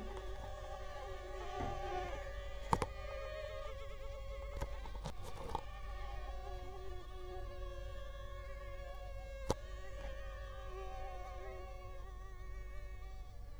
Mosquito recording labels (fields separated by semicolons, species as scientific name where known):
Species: Culex quinquefasciatus; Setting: cup